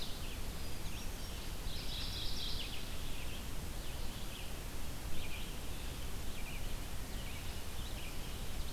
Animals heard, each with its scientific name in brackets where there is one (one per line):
Mourning Warbler (Geothlypis philadelphia)
Red-eyed Vireo (Vireo olivaceus)
Hermit Thrush (Catharus guttatus)